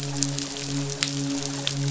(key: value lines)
label: biophony, midshipman
recorder: SoundTrap 500